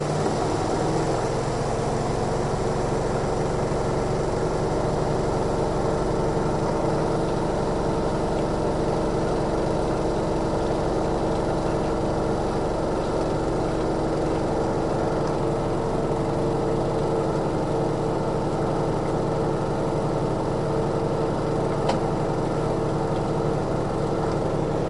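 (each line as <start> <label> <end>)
0.0 A washing machine spins clothes loudly inside. 24.9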